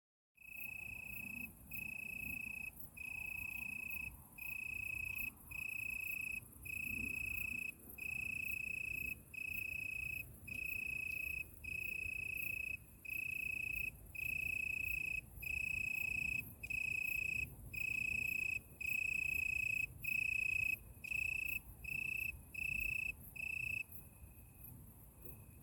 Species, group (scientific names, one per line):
Oecanthus pellucens
Orthoptera